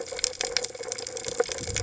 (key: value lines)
label: biophony
recorder: HydroMoth